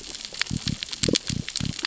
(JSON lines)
{"label": "biophony", "recorder": "SoundTrap 600 or HydroMoth"}